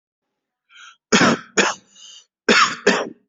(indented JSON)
{
  "expert_labels": [
    {
      "quality": "ok",
      "cough_type": "unknown",
      "dyspnea": false,
      "wheezing": false,
      "stridor": false,
      "choking": false,
      "congestion": false,
      "nothing": true,
      "diagnosis": "COVID-19",
      "severity": "mild"
    }
  ],
  "age": 29,
  "gender": "male",
  "respiratory_condition": false,
  "fever_muscle_pain": false,
  "status": "symptomatic"
}